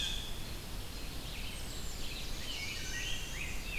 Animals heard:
Black-and-white Warbler (Mniotilta varia), Ovenbird (Seiurus aurocapilla), Red-eyed Vireo (Vireo olivaceus), Rose-breasted Grosbeak (Pheucticus ludovicianus), Wood Thrush (Hylocichla mustelina)

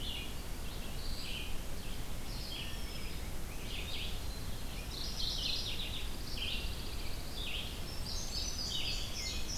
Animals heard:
Indigo Bunting (Passerina cyanea), Pine Warbler (Setophaga pinus), Red-eyed Vireo (Vireo olivaceus), Mourning Warbler (Geothlypis philadelphia)

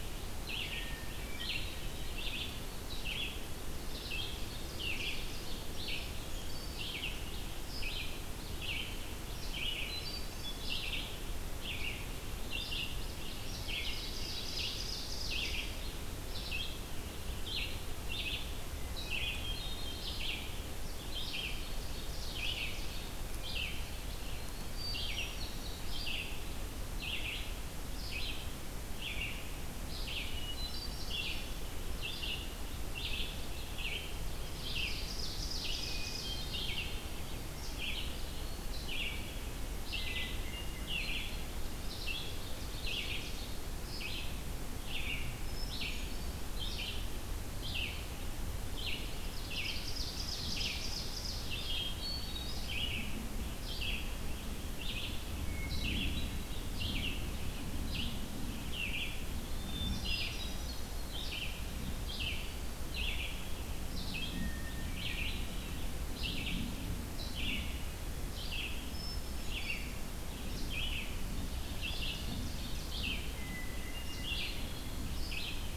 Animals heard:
Eastern Wood-Pewee (Contopus virens), Hermit Thrush (Catharus guttatus), Red-eyed Vireo (Vireo olivaceus), Ovenbird (Seiurus aurocapilla)

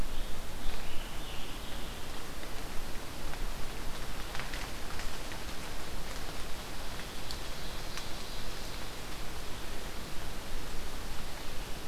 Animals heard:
Ovenbird (Seiurus aurocapilla), Scarlet Tanager (Piranga olivacea)

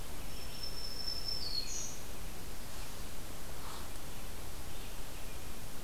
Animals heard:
Red-eyed Vireo (Vireo olivaceus), Black-throated Green Warbler (Setophaga virens)

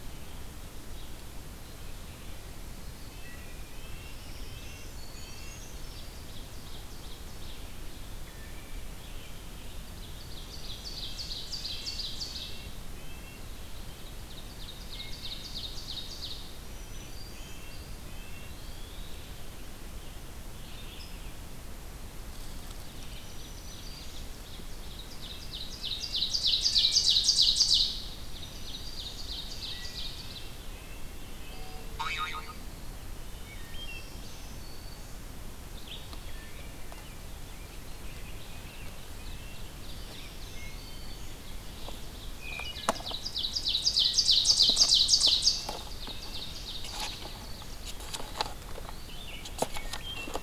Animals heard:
Red-eyed Vireo (Vireo olivaceus), Wood Thrush (Hylocichla mustelina), Brown Creeper (Certhia americana), Red-breasted Nuthatch (Sitta canadensis), Ovenbird (Seiurus aurocapilla), Eastern Wood-Pewee (Contopus virens), American Robin (Turdus migratorius), Black-throated Green Warbler (Setophaga virens)

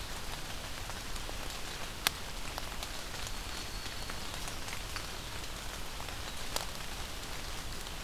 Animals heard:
Black-throated Green Warbler (Setophaga virens)

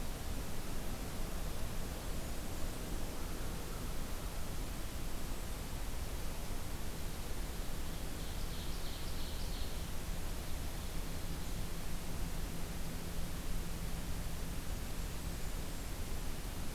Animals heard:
Ovenbird (Seiurus aurocapilla), Blackburnian Warbler (Setophaga fusca)

